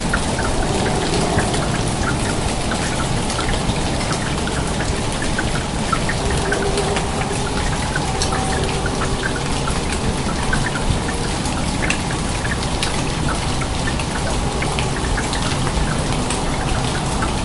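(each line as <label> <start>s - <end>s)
Clicking sounds repeating. 0.0s - 17.4s
Rain is falling. 0.0s - 17.4s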